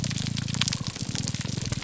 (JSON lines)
{"label": "biophony, grouper groan", "recorder": "SoundTrap 300"}